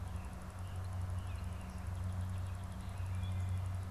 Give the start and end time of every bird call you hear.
[0.40, 3.20] Song Sparrow (Melospiza melodia)
[2.80, 3.60] Wood Thrush (Hylocichla mustelina)

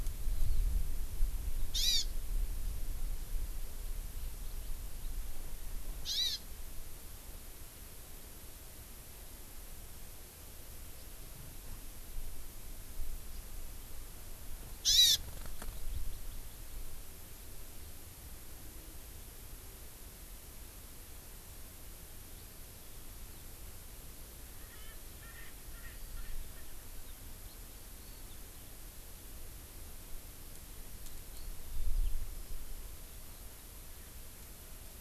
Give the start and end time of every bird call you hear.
[0.16, 0.56] Hawaii Amakihi (Chlorodrepanis virens)
[1.66, 2.06] Hawaii Amakihi (Chlorodrepanis virens)
[6.06, 6.46] Hawaii Amakihi (Chlorodrepanis virens)
[10.96, 11.06] Hawaii Amakihi (Chlorodrepanis virens)
[14.86, 15.16] Hawaii Amakihi (Chlorodrepanis virens)
[24.56, 27.36] Erckel's Francolin (Pternistis erckelii)
[25.76, 28.96] Eurasian Skylark (Alauda arvensis)
[31.26, 31.46] Eurasian Skylark (Alauda arvensis)

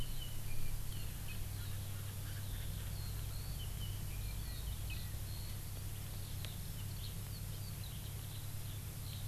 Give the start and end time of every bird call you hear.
[1.54, 3.34] Erckel's Francolin (Pternistis erckelii)
[2.84, 9.28] Eurasian Skylark (Alauda arvensis)

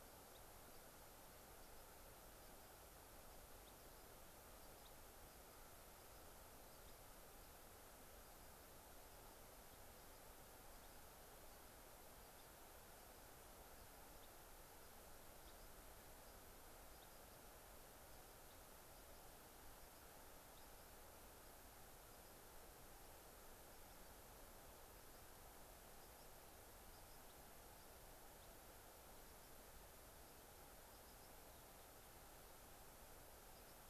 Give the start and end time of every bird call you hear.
[0.30, 0.40] Yellow Warbler (Setophaga petechia)
[3.60, 3.70] Yellow-rumped Warbler (Setophaga coronata)
[4.80, 4.90] Yellow-rumped Warbler (Setophaga coronata)
[6.80, 7.00] Yellow-rumped Warbler (Setophaga coronata)
[26.00, 26.30] unidentified bird
[26.90, 27.20] unidentified bird
[27.70, 27.90] unidentified bird
[30.80, 31.30] unidentified bird
[33.50, 33.80] unidentified bird

